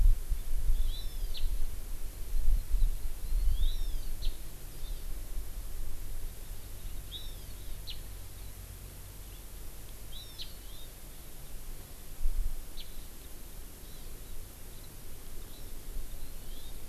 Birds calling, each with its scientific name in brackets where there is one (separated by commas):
Hawaii Amakihi (Chlorodrepanis virens)